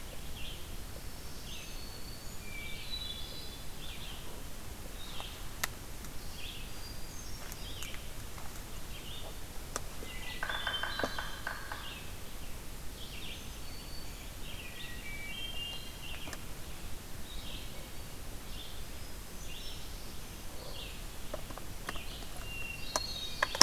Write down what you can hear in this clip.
Red-eyed Vireo, Black-throated Green Warbler, Hermit Thrush, Yellow-bellied Sapsucker